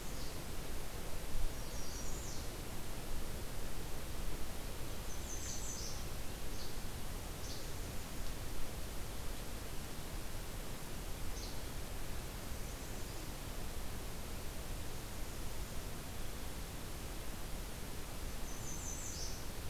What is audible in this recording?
Least Flycatcher, American Redstart